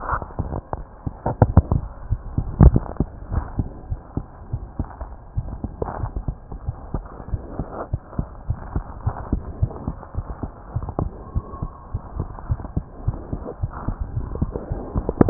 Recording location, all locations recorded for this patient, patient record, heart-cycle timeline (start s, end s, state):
aortic valve (AV)
aortic valve (AV)+pulmonary valve (PV)+tricuspid valve (TV)+mitral valve (MV)
#Age: Child
#Sex: Male
#Height: 95.0 cm
#Weight: 14.4 kg
#Pregnancy status: False
#Murmur: Absent
#Murmur locations: nan
#Most audible location: nan
#Systolic murmur timing: nan
#Systolic murmur shape: nan
#Systolic murmur grading: nan
#Systolic murmur pitch: nan
#Systolic murmur quality: nan
#Diastolic murmur timing: nan
#Diastolic murmur shape: nan
#Diastolic murmur grading: nan
#Diastolic murmur pitch: nan
#Diastolic murmur quality: nan
#Outcome: Normal
#Campaign: 2015 screening campaign
0.00	3.86	unannotated
3.86	4.00	S1
4.00	4.13	systole
4.13	4.24	S2
4.24	4.49	diastole
4.49	4.64	S1
4.64	4.77	systole
4.77	4.88	S2
4.88	5.34	diastole
5.34	5.48	S1
5.48	5.61	systole
5.61	5.74	S2
5.74	5.99	diastole
5.99	6.11	S1
6.11	6.24	systole
6.24	6.36	S2
6.36	6.64	diastole
6.64	6.74	S1
6.74	6.91	systole
6.91	7.04	S2
7.04	7.28	diastole
7.28	7.42	S1
7.42	7.56	systole
7.56	7.68	S2
7.68	7.89	diastole
7.89	8.02	S1
8.02	8.16	systole
8.16	8.28	S2
8.28	8.45	diastole
8.45	8.58	S1
8.58	8.71	systole
8.71	8.84	S2
8.84	9.03	diastole
9.03	9.16	S1
9.16	9.30	systole
9.30	9.42	S2
9.42	9.59	diastole
9.59	9.69	S1
9.69	9.84	systole
9.84	9.94	S2
9.94	10.13	diastole
10.13	10.26	S1
10.26	10.40	systole
10.40	10.52	S2
10.52	10.72	diastole
10.72	10.85	S1
10.85	15.30	unannotated